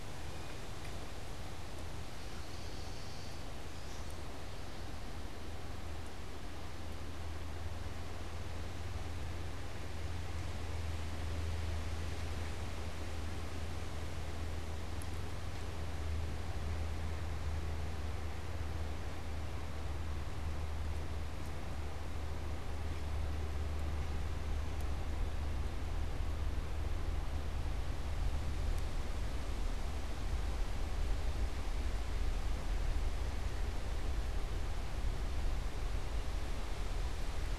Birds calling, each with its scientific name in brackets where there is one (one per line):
unidentified bird